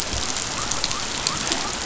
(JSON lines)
{"label": "biophony", "recorder": "SoundTrap 500"}